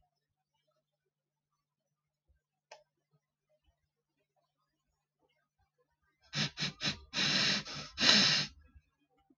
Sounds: Sniff